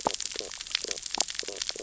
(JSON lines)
{"label": "biophony, stridulation", "recorder": "SoundTrap 600 or HydroMoth"}